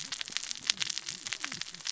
{"label": "biophony, cascading saw", "recorder": "SoundTrap 600 or HydroMoth"}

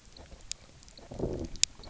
{"label": "biophony, low growl", "recorder": "SoundTrap 300"}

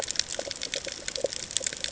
{"label": "ambient", "recorder": "HydroMoth"}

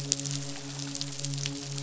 {"label": "biophony, midshipman", "recorder": "SoundTrap 500"}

